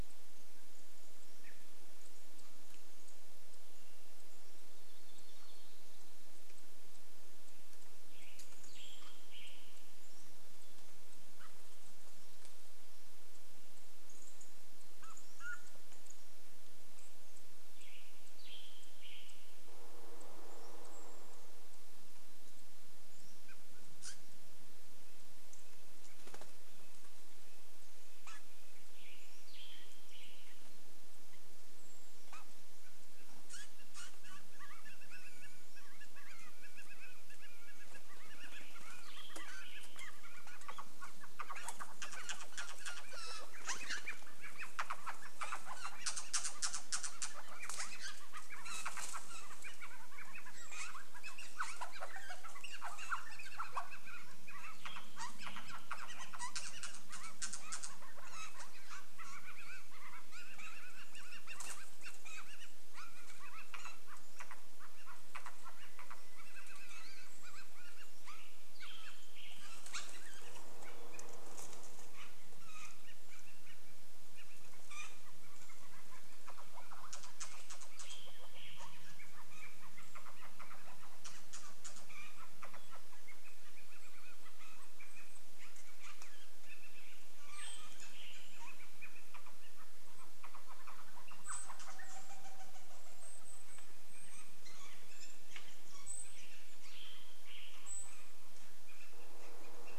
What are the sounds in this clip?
Canada Jay call, unidentified bird chip note, warbler song, Western Tanager song, Pacific-slope Flycatcher song, Pacific-slope Flycatcher call, woodpecker drumming, Red-breasted Nuthatch song, bird wingbeats, Golden-crowned Kinglet call, Pileated Woodpecker call, Cooper's Hawk call